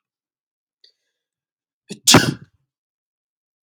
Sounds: Sneeze